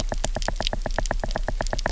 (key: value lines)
label: biophony, knock
recorder: SoundTrap 300